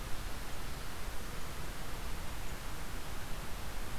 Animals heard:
forest ambience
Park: Marsh-Billings-Rockefeller National Historical Park